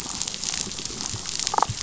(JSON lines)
{"label": "biophony, damselfish", "recorder": "SoundTrap 500"}